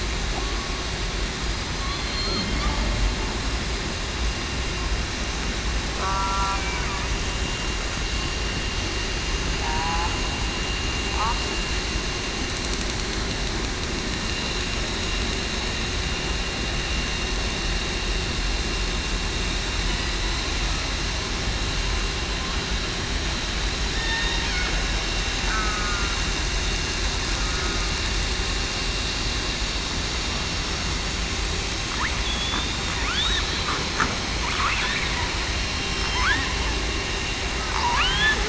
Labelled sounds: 1.7	2.4	killer whale, southern resident, 4.1 to 4.2 kHz
6.0	6.6	killer whale, southern resident, 0.94 to 1.4 kHz
9.6	10.1	killer whale, southern resident, 0.75 to 1.1 kHz
23.9	24.4	killer whale, southern resident, 1.7 to 2.0 kHz
25.5	26.1	killer whale, southern resident, 1.2 to 1.3 kHz
32.2	32.9	killer whale, southern resident, 3.3 to 3.8 kHz
33.2	33.7	killer whale, southern resident, 3.3 to 4.1 kHz
38.0	38.3	killer whale, southern resident, 1.1 to 3.5 kHz

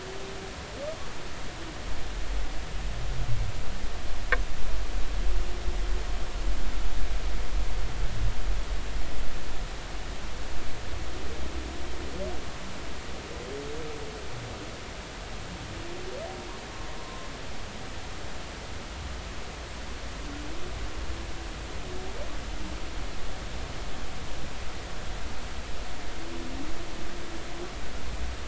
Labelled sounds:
17.0	17.3	humpback whale, 0.99 to 1.1 kHz

